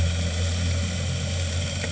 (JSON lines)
{"label": "anthrophony, boat engine", "recorder": "HydroMoth"}